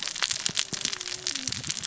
{"label": "biophony, cascading saw", "recorder": "SoundTrap 600 or HydroMoth"}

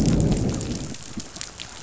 {"label": "biophony, growl", "recorder": "SoundTrap 500"}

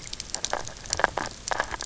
{"label": "biophony, grazing", "recorder": "SoundTrap 300"}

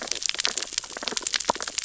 {"label": "biophony, sea urchins (Echinidae)", "recorder": "SoundTrap 600 or HydroMoth"}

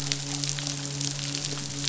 {"label": "biophony, midshipman", "recorder": "SoundTrap 500"}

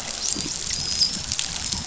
{"label": "biophony, dolphin", "recorder": "SoundTrap 500"}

